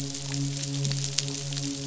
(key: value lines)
label: biophony, midshipman
recorder: SoundTrap 500